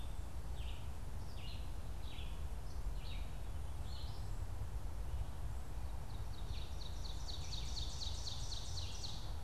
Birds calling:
Ovenbird (Seiurus aurocapilla), Red-eyed Vireo (Vireo olivaceus)

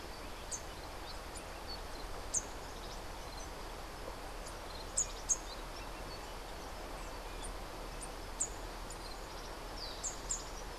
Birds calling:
Rufous-capped Warbler (Basileuterus rufifrons)

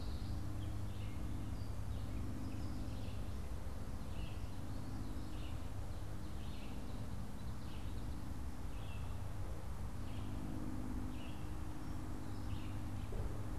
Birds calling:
Gray Catbird (Dumetella carolinensis), Red-eyed Vireo (Vireo olivaceus), Common Yellowthroat (Geothlypis trichas)

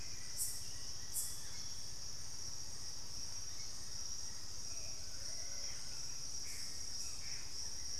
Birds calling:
Hauxwell's Thrush (Turdus hauxwelli), Plain-winged Antshrike (Thamnophilus schistaceus), Gray Antbird (Cercomacra cinerascens), Plumbeous Pigeon (Patagioenas plumbea)

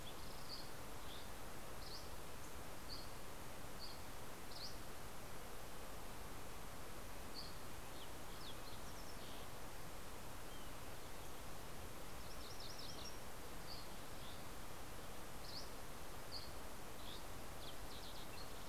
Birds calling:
Fox Sparrow (Passerella iliaca), MacGillivray's Warbler (Geothlypis tolmiei), Red-breasted Nuthatch (Sitta canadensis), Dusky Flycatcher (Empidonax oberholseri), Green-tailed Towhee (Pipilo chlorurus)

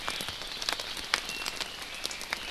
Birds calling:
Red-billed Leiothrix (Leiothrix lutea), Hawaii Creeper (Loxops mana), Omao (Myadestes obscurus)

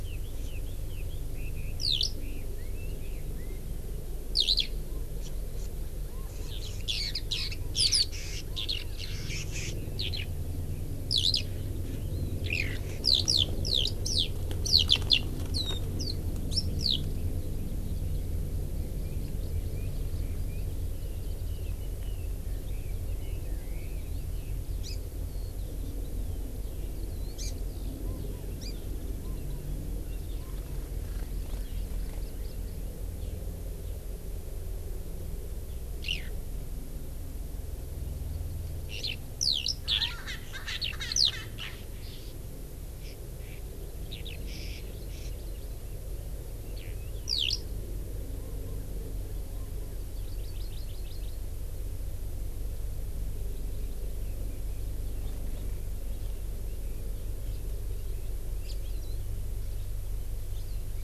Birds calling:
Eurasian Skylark (Alauda arvensis), Red-billed Leiothrix (Leiothrix lutea), Hawaii Amakihi (Chlorodrepanis virens), Erckel's Francolin (Pternistis erckelii)

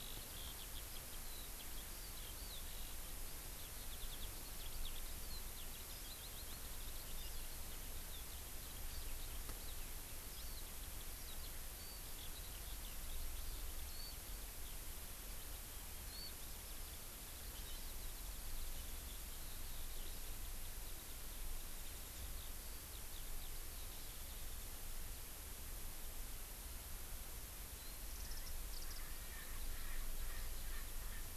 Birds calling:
Eurasian Skylark (Alauda arvensis), Warbling White-eye (Zosterops japonicus), Erckel's Francolin (Pternistis erckelii)

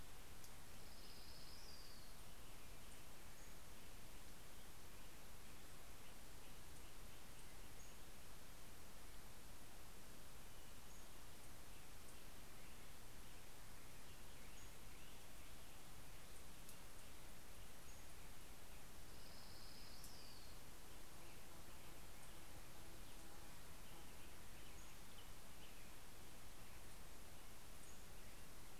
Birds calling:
Black-headed Grosbeak (Pheucticus melanocephalus), Pacific-slope Flycatcher (Empidonax difficilis), Orange-crowned Warbler (Leiothlypis celata)

